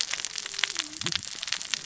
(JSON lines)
{"label": "biophony, cascading saw", "recorder": "SoundTrap 600 or HydroMoth"}